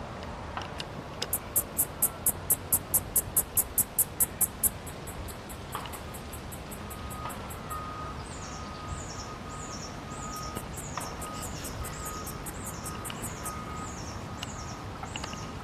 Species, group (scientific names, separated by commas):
Yoyetta celis, Cicadidae